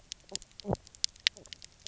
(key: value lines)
label: biophony, knock croak
recorder: SoundTrap 300